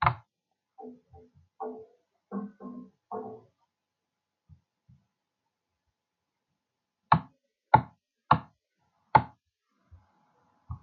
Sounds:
Cough